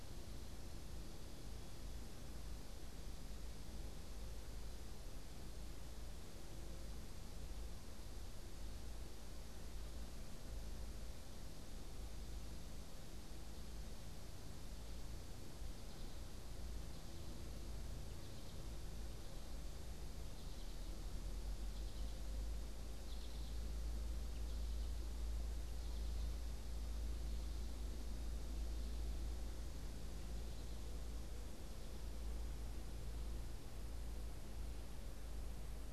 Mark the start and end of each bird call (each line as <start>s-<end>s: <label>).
19.9s-31.5s: American Goldfinch (Spinus tristis)